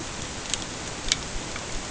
{"label": "ambient", "recorder": "HydroMoth"}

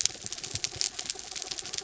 {"label": "anthrophony, mechanical", "recorder": "SoundTrap 300"}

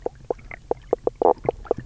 {"label": "biophony, knock croak", "recorder": "SoundTrap 300"}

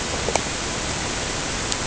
{"label": "ambient", "recorder": "HydroMoth"}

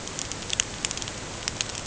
{"label": "ambient", "recorder": "HydroMoth"}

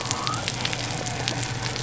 {"label": "biophony", "recorder": "SoundTrap 300"}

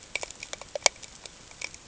{"label": "ambient", "recorder": "HydroMoth"}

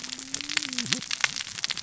{"label": "biophony, cascading saw", "recorder": "SoundTrap 600 or HydroMoth"}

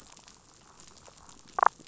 {"label": "biophony, damselfish", "recorder": "SoundTrap 500"}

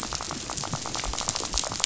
{"label": "biophony, rattle", "recorder": "SoundTrap 500"}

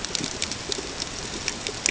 {"label": "ambient", "recorder": "HydroMoth"}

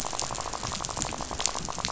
{"label": "biophony, rattle", "recorder": "SoundTrap 500"}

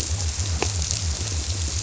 {"label": "biophony", "recorder": "SoundTrap 300"}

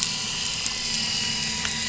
{"label": "anthrophony, boat engine", "recorder": "SoundTrap 500"}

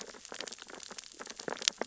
{"label": "biophony, sea urchins (Echinidae)", "recorder": "SoundTrap 600 or HydroMoth"}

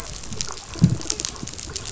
{"label": "biophony", "recorder": "SoundTrap 500"}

